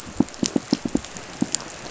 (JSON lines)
{"label": "biophony, pulse", "recorder": "SoundTrap 500"}